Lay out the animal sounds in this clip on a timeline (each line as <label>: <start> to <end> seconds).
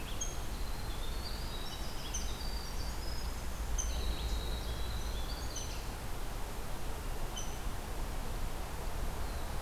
Winter Wren (Troglodytes hiemalis): 0.0 to 5.8 seconds
Rose-breasted Grosbeak (Pheucticus ludovicianus): 0.0 to 9.6 seconds